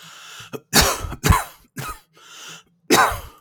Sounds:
Cough